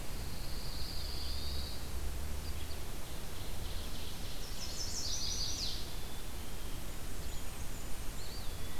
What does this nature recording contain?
Pine Warbler, Eastern Wood-Pewee, Red-eyed Vireo, Ovenbird, Chestnut-sided Warbler, Blackburnian Warbler